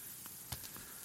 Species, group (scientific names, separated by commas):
Gryllus campestris, Orthoptera